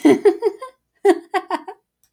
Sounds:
Laughter